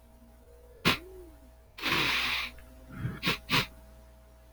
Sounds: Sniff